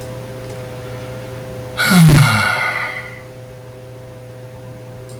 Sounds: Sigh